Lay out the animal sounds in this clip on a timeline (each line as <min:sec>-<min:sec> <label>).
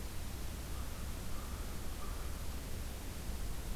0:00.5-0:02.4 American Crow (Corvus brachyrhynchos)